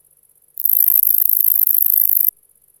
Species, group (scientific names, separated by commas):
Tettigonia longispina, Orthoptera